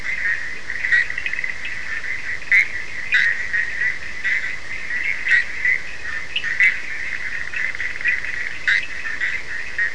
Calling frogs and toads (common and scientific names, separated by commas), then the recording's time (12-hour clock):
Bischoff's tree frog (Boana bischoffi), Cochran's lime tree frog (Sphaenorhynchus surdus)
4:15am